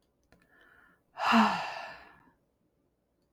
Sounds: Sigh